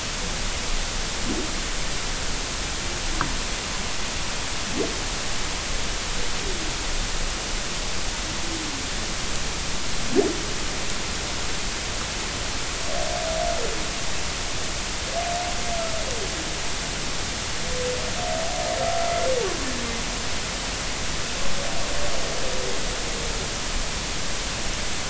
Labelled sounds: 18.8	19.1	humpback whale, 1.2 to 1.4 kHz

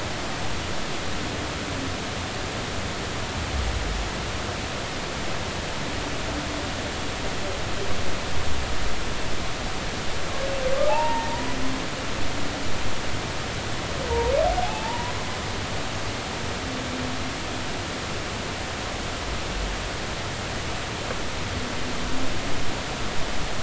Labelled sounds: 10.9	11.4	humpback whale, 0.80 to 1.9 kHz
14.6	15.1	humpback whale, 0.80 to 1.0 kHz

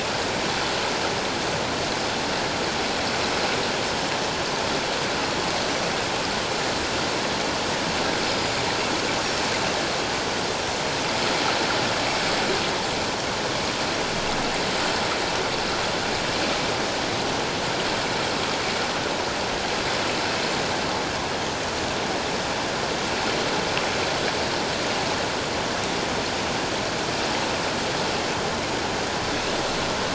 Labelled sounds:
8.3	8.5	Pacific white-sided dolphin, 4.8 to 5.1 kHz

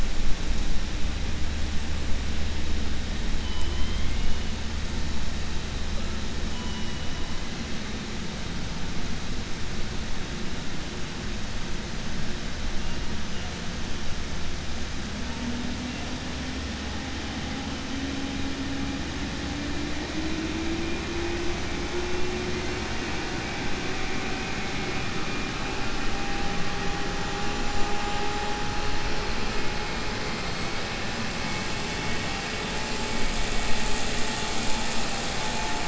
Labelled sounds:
3.4	4.3	killer whale, 2.0 to 3.6 kHz

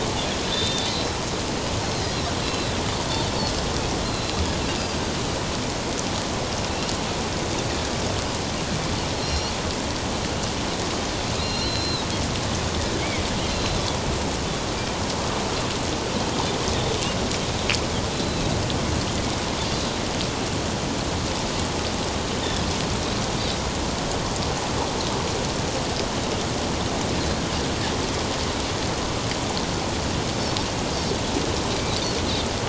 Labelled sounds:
0.4	1.2	Pacific white-sided dolphin, 3.4 to 4.2 kHz
2.1	2.7	Pacific white-sided dolphin, 2.7 to 5.7 kHz
4.0	4.4	Pacific white-sided dolphin, 3.8 to 4.2 kHz
9.2	9.5	Pacific white-sided dolphin, 4.1 to 5.8 kHz
11.4	12.1	Pacific white-sided dolphin, 2.7 to 4.5 kHz
13.5	13.8	Pacific white-sided dolphin, 4.0 to 4.1 kHz
18.1	18.5	Pacific white-sided dolphin, 3.8 to 4.2 kHz

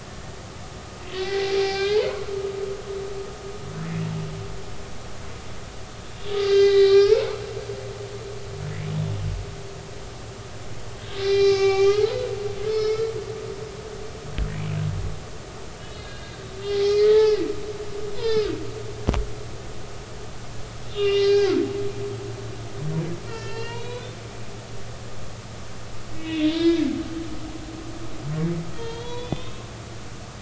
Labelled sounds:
1.1	2.3	humpback whale, 0.80 to 4.3 kHz
6.4	7.4	humpback whale, 0.80 to 4.9 kHz
11.2	12.2	humpback whale, 0.80 to 5.2 kHz
12.7	13.1	humpback whale, 1.2 to 5.4 kHz
15.8	16.3	humpback whale, 2.8 to 4.3 kHz
16.7	17.5	humpback whale, 0.80 to 4.3 kHz
18.1	18.5	humpback whale, 0.83 to 5.5 kHz
20.9	21.6	humpback whale, 1.3 to 3.7 kHz
23.2	24.2	humpback whale, 0.90 to 5.6 kHz
24.5	24.9	humpback whale, 4.0 to 4.7 kHz
26.1	26.9	humpback whale, 1.6 to 3.7 kHz
28.7	29.6	humpback whale, 0.86 to 4.4 kHz

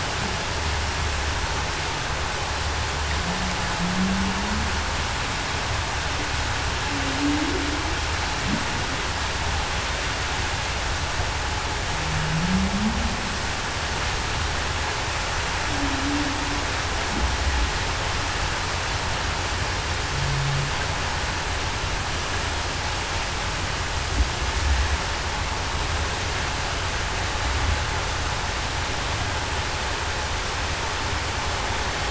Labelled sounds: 3.8	4.3	humpback whale, 0.19 to 0.23 kHz
7.0	7.7	humpback whale, 0.26 to 0.40 kHz
12.4	12.9	humpback whale, 0.19 to 0.26 kHz
15.7	16.3	humpback whale, 0.23 to 0.33 kHz

